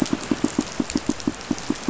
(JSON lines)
{"label": "biophony, pulse", "recorder": "SoundTrap 500"}